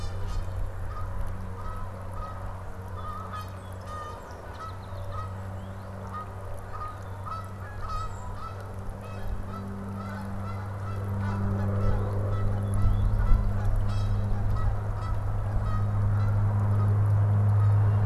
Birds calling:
Canada Goose (Branta canadensis), Northern Cardinal (Cardinalis cardinalis), Song Sparrow (Melospiza melodia), Red-winged Blackbird (Agelaius phoeniceus), Golden-crowned Kinglet (Regulus satrapa)

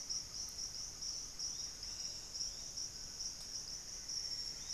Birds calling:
Great Antshrike (Taraba major), Plumbeous Antbird (Myrmelastes hyperythrus), unidentified bird

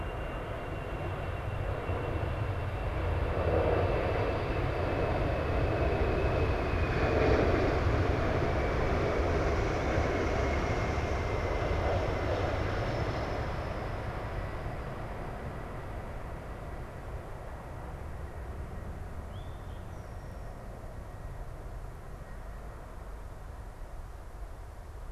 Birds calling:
Eastern Towhee (Pipilo erythrophthalmus)

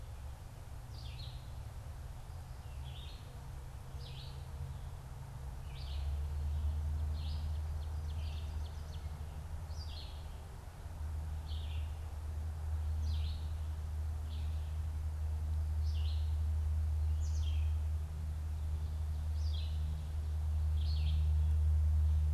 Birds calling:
Ovenbird (Seiurus aurocapilla), Red-eyed Vireo (Vireo olivaceus)

